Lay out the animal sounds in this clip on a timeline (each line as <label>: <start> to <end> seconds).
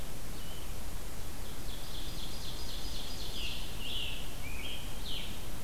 Ovenbird (Seiurus aurocapilla): 1.1 to 3.7 seconds
Scarlet Tanager (Piranga olivacea): 3.2 to 5.6 seconds